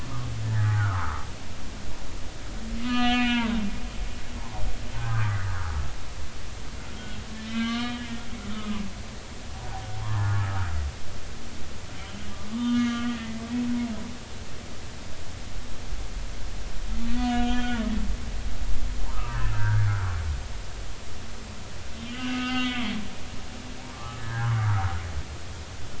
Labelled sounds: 0.4	1.2	humpback whale, 0.80 to 2.0 kHz
2.8	3.5	humpback whale, 0.86 to 6.0 kHz
4.2	5.4	humpback whale, 0.96 to 3.7 kHz
6.9	8.1	humpback whale, 1.1 to 3.2 kHz
8.5	8.8	humpback whale, 1.1 to 1.3 kHz
9.5	10.3	humpback whale, 0.80 to 1.3 kHz
12.5	13.1	humpback whale, 1.1 to 3.2 kHz
17.1	17.9	humpback whale, 1.2 to 3.3 kHz
19.1	19.9	humpback whale, 1.1 to 1.9 kHz
22.1	22.9	humpback whale, 1.2 to 3.4 kHz
23.9	24.7	humpback whale, 0.80 to 1.8 kHz

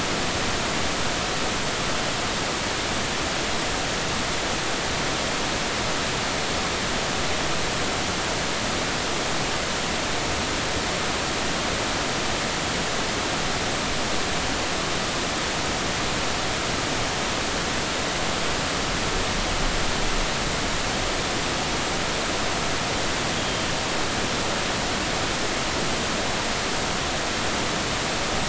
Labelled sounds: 23.4	23.7	Pacific white-sided dolphin, 3.1 to 3.4 kHz

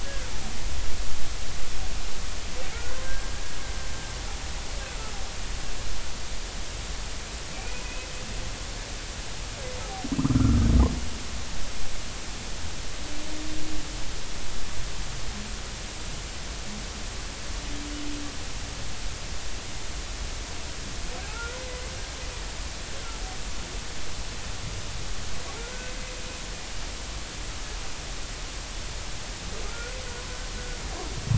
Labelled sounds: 0.1	0.3	humpback whale, 1.3 to 1.7 kHz
3.0	3.3	humpback whale, 1.5 to 1.7 kHz
7.5	8.1	humpback whale, 2.2 to 2.6 kHz
10.2	10.6	humpback whale, 1.2 to 1.4 kHz
21.3	21.6	humpback whale, 1.2 to 1.5 kHz
29.7	29.9	humpback whale, 1.3 to 1.5 kHz

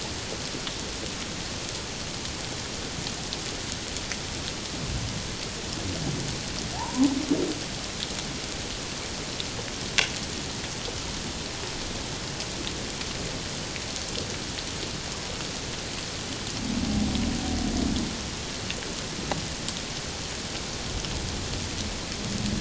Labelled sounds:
6.8	7.1	humpback whale, 0.78 to 1.1 kHz

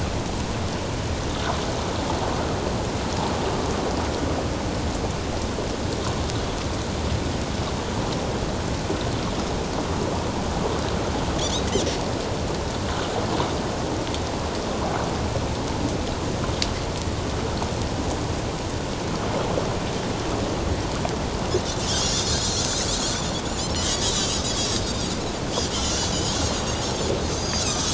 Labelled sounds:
11.4	11.7	Pacific white-sided dolphin, 3.2 to 3.9 kHz
21.9	22.8	Pacific white-sided dolphin, 3.5 to 7.2 kHz
23.8	25.0	Pacific white-sided dolphin, 3.8 to 6.9 kHz
25.7	27.1	Pacific white-sided dolphin, 1.3 to 7.6 kHz
27.4	27.7	Pacific white-sided dolphin, 4.5 to 6.5 kHz

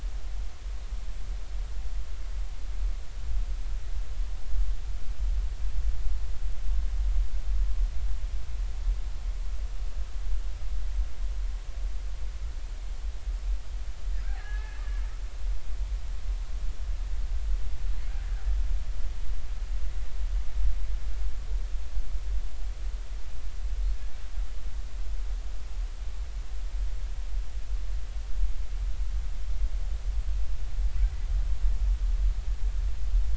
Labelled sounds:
14.4	14.8	killer whale, Bigg's (transient), 1.6 to 2.0 kHz

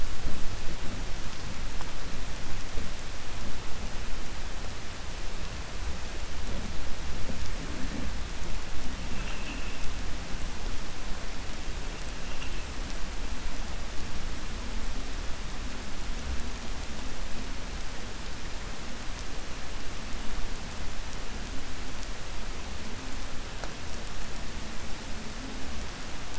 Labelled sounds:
9.1	9.8	vessel noise, 1.3 to 3.3 kHz

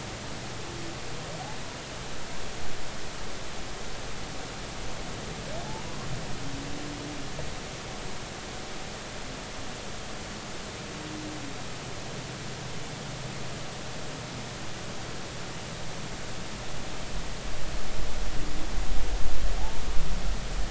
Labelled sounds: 19.6	19.8	humpback whale, 0.80 to 0.99 kHz

